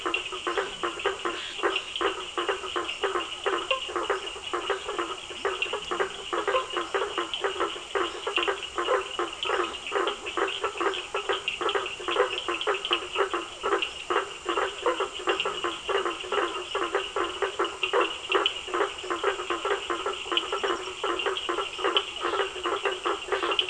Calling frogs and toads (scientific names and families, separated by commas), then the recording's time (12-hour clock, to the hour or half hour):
Scinax perereca (Hylidae), Boana faber (Hylidae), Physalaemus cuvieri (Leptodactylidae), Sphaenorhynchus surdus (Hylidae)
7:30pm